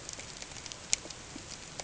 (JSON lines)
{"label": "ambient", "recorder": "HydroMoth"}